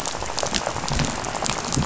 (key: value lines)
label: biophony, rattle
recorder: SoundTrap 500